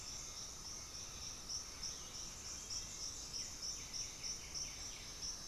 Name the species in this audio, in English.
White-winged Becard